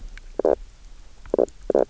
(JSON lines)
{"label": "biophony, knock croak", "recorder": "SoundTrap 300"}